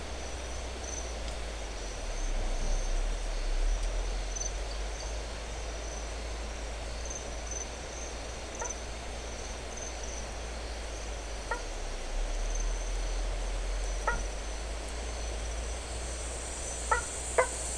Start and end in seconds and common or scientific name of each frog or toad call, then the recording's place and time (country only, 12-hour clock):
8.5	8.8	blacksmith tree frog
11.3	11.8	blacksmith tree frog
14.0	14.4	blacksmith tree frog
16.6	17.7	blacksmith tree frog
Brazil, 6:30pm